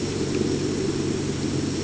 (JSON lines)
{"label": "anthrophony, boat engine", "recorder": "HydroMoth"}